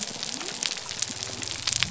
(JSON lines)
{"label": "biophony", "recorder": "SoundTrap 300"}